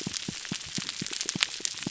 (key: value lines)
label: biophony, pulse
recorder: SoundTrap 300